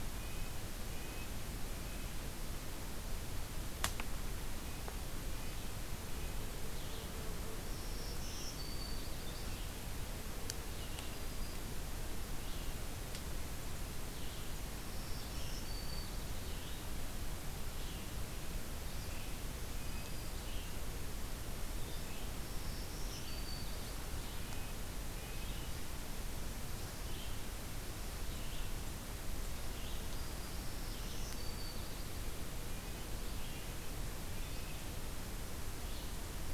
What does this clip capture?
Red-breasted Nuthatch, Red-eyed Vireo, Black-throated Green Warbler